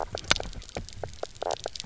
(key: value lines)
label: biophony, knock croak
recorder: SoundTrap 300